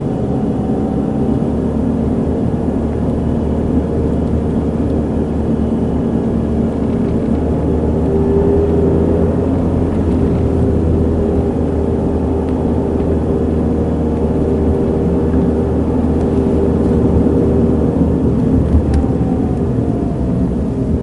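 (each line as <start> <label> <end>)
0.0 A soft, steady hum of an engine and road noise echo gently inside a car moving at medium speed. 21.0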